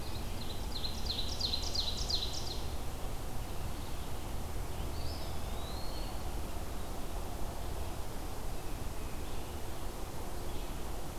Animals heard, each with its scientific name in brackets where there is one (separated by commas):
Eastern Wood-Pewee (Contopus virens), Ovenbird (Seiurus aurocapilla)